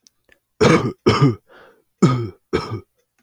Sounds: Cough